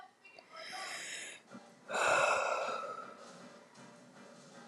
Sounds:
Sigh